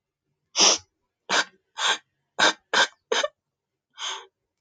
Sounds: Sniff